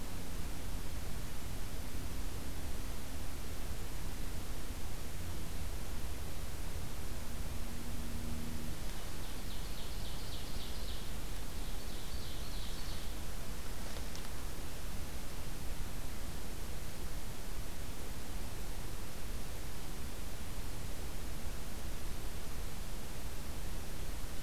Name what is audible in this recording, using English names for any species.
Ovenbird